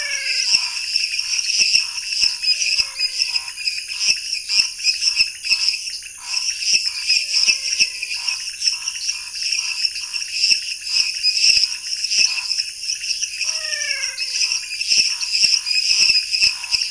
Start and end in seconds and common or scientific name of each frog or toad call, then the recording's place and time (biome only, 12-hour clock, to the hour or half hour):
0.0	0.7	menwig frog
0.0	16.9	lesser tree frog
0.0	16.9	dwarf tree frog
0.0	16.9	pointedbelly frog
0.0	16.9	Scinax fuscovarius
2.5	3.7	menwig frog
7.0	8.2	menwig frog
13.3	14.8	menwig frog
Cerrado, 9:30pm